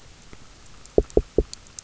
{"label": "biophony, knock", "recorder": "SoundTrap 300"}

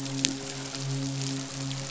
{"label": "biophony, midshipman", "recorder": "SoundTrap 500"}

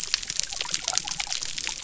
{"label": "biophony", "recorder": "SoundTrap 300"}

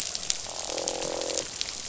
{"label": "biophony, croak", "recorder": "SoundTrap 500"}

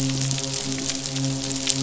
{"label": "biophony, midshipman", "recorder": "SoundTrap 500"}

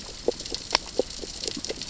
{"label": "biophony, grazing", "recorder": "SoundTrap 600 or HydroMoth"}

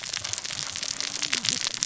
{"label": "biophony, cascading saw", "recorder": "SoundTrap 600 or HydroMoth"}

